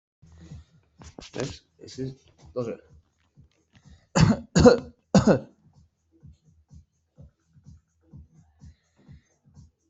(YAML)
expert_labels:
- quality: ok
  cough_type: dry
  dyspnea: false
  wheezing: false
  stridor: false
  choking: false
  congestion: false
  nothing: true
  diagnosis: upper respiratory tract infection
  severity: mild
age: 35
gender: male
respiratory_condition: true
fever_muscle_pain: true
status: COVID-19